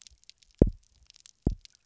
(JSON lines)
{"label": "biophony, double pulse", "recorder": "SoundTrap 300"}